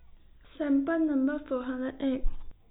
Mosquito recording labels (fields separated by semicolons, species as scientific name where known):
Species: no mosquito; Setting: cup